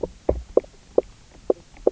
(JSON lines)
{"label": "biophony, knock croak", "recorder": "SoundTrap 300"}